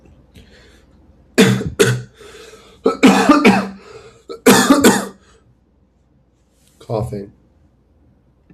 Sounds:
Cough